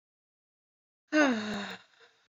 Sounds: Sigh